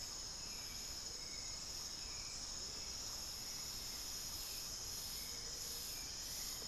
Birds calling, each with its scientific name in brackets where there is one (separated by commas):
Speckled Chachalaca (Ortalis guttata), Amazonian Motmot (Momotus momota), Hauxwell's Thrush (Turdus hauxwelli), Buff-throated Woodcreeper (Xiphorhynchus guttatus)